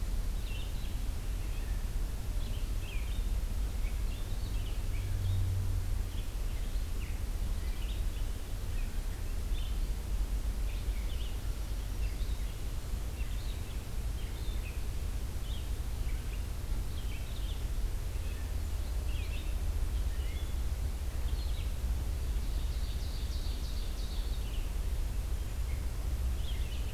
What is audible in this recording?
Red-eyed Vireo, Ovenbird